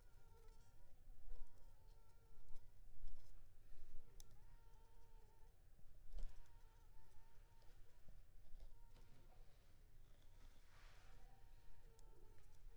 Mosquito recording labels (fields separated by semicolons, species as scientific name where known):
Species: Anopheles funestus s.s.; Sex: female; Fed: unfed; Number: one; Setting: cup